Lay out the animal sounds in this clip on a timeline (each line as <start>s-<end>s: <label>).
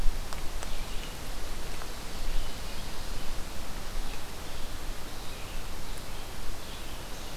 0.0s-7.4s: Red-eyed Vireo (Vireo olivaceus)